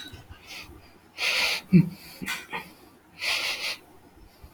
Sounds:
Sigh